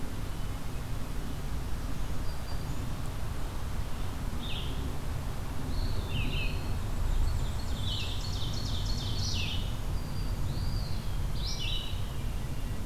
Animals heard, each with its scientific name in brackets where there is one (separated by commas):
Ovenbird (Seiurus aurocapilla), Eastern Wood-Pewee (Contopus virens), Black-throated Green Warbler (Setophaga virens), Black-and-white Warbler (Mniotilta varia), Red-eyed Vireo (Vireo olivaceus), Hermit Thrush (Catharus guttatus)